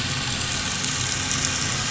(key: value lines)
label: anthrophony, boat engine
recorder: SoundTrap 500